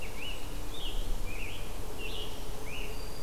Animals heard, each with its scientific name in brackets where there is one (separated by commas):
Scarlet Tanager (Piranga olivacea), Black-throated Green Warbler (Setophaga virens)